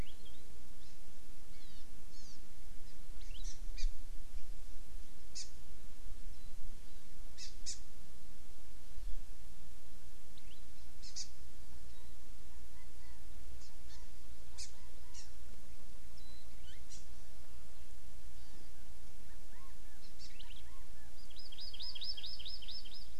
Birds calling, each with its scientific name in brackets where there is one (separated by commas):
Warbling White-eye (Zosterops japonicus), Hawaii Amakihi (Chlorodrepanis virens), Chinese Hwamei (Garrulax canorus)